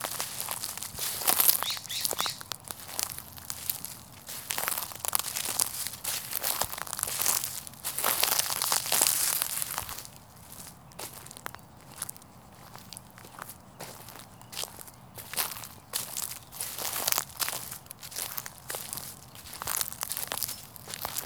Is this happening outdoors?
yes